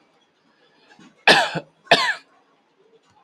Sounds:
Cough